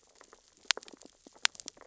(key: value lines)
label: biophony, sea urchins (Echinidae)
recorder: SoundTrap 600 or HydroMoth